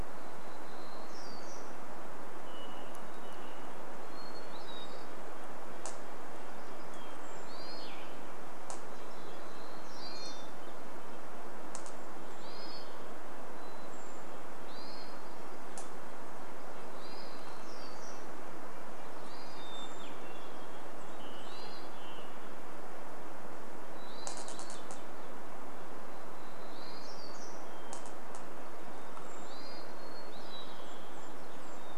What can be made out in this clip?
warbler song, Hermit Thrush song, Red-breasted Nuthatch song, Brown Creeper call, Hermit Thrush call, Western Tanager song